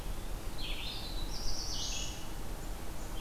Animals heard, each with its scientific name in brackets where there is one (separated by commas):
Black-throated Blue Warbler (Setophaga caerulescens), Red-eyed Vireo (Vireo olivaceus)